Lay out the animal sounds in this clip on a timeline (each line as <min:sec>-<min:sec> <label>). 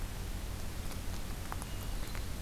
0:01.5-0:02.4 Hermit Thrush (Catharus guttatus)